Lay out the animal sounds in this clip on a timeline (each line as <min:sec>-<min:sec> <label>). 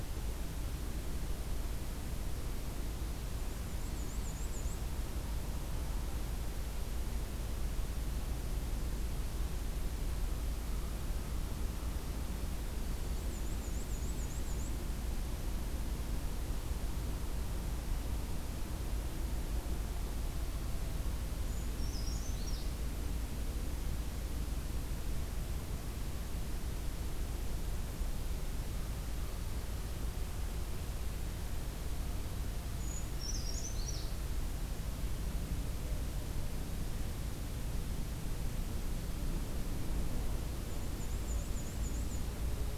0:03.2-0:04.8 Black-and-white Warbler (Mniotilta varia)
0:12.8-0:13.3 Black-throated Green Warbler (Setophaga virens)
0:13.1-0:14.8 Black-and-white Warbler (Mniotilta varia)
0:21.4-0:22.7 Brown Creeper (Certhia americana)
0:32.7-0:34.1 Brown Creeper (Certhia americana)
0:40.5-0:42.4 Black-and-white Warbler (Mniotilta varia)